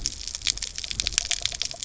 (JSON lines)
{"label": "biophony", "recorder": "SoundTrap 300"}